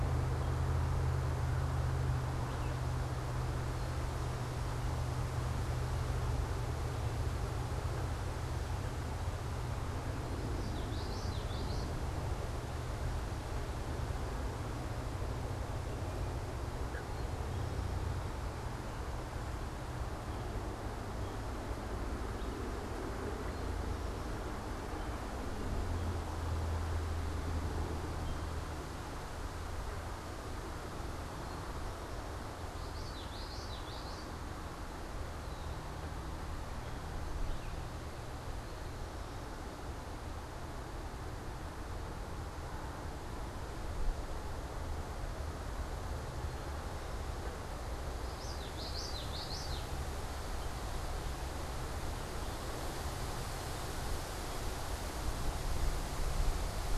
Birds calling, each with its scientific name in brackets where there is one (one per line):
Song Sparrow (Melospiza melodia)
Eastern Towhee (Pipilo erythrophthalmus)
unidentified bird
Common Yellowthroat (Geothlypis trichas)